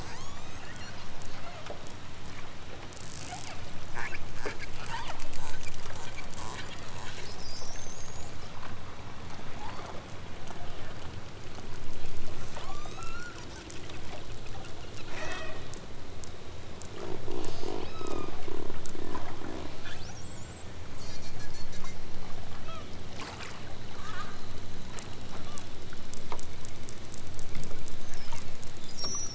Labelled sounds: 0.0	1.0	killer whale, southern Alaska resident, 0.74 to 8.0 kHz
1.4	1.8	killer whale, southern Alaska resident, 0.39 to 3.2 kHz
3.2	3.6	killer whale, southern Alaska resident, 0.39 to 2.9 kHz
4.8	5.2	killer whale, southern Alaska resident, 0.56 to 3.9 kHz
9.6	10.0	killer whale, southern Alaska resident, 0.60 to 5.1 kHz
12.4	13.4	killer whale, southern Alaska resident, 0.60 to 8.0 kHz
15.0	15.7	killer whale, southern Alaska resident, 0.28 to 8.0 kHz
17.8	18.5	killer whale, southern Alaska resident, 0.83 to 7.0 kHz
20.1	20.5	killer whale, southern Alaska resident, 2.6 to 6.1 kHz
22.6	23.0	killer whale, southern Alaska resident, 0.51 to 4.7 kHz
25.1	25.8	killer whale, southern Alaska resident, 0.92 to 4.2 kHz
28.2	28.5	killer whale, southern Alaska resident, 0.86 to 3.3 kHz

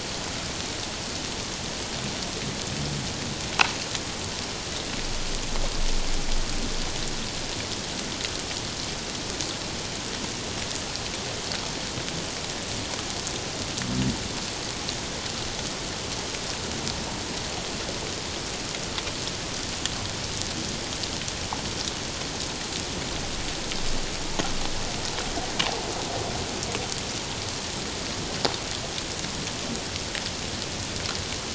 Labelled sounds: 25.6	25.8	water noise, 0.78 to 1.2 kHz

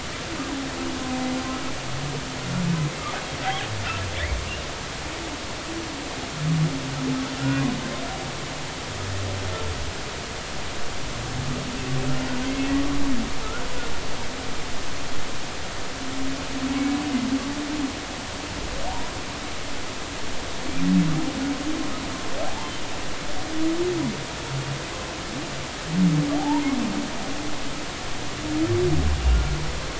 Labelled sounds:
3.4	3.7	humpback whale, 0.80 to 0.86 kHz
7.4	7.6	humpback whale, 1.3 to 1.5 kHz
22.5	22.7	humpback whale, 0.80 to 1.1 kHz
26.4	26.6	humpback whale, 0.80 to 1.0 kHz

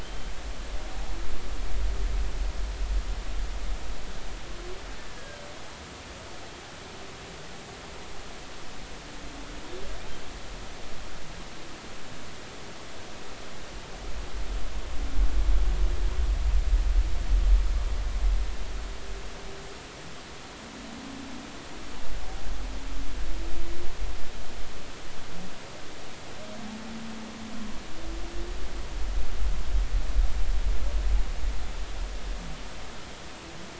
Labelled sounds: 0.0	0.3	humpback whale, 2.9 to 3.2 kHz
5.2	5.4	humpback whale, 1.5 to 1.7 kHz

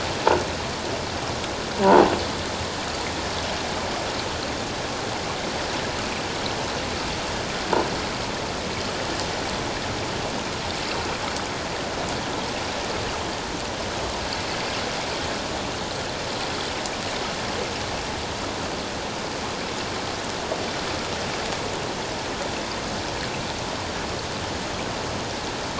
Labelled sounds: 1.7	2.1	croaking sound likely from a nearby submerged object, 0.78 to 1.0 kHz

